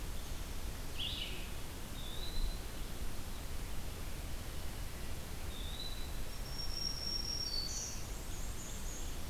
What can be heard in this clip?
Red-eyed Vireo, Eastern Wood-Pewee, Black-throated Green Warbler, Black-and-white Warbler